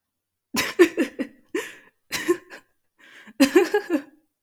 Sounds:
Laughter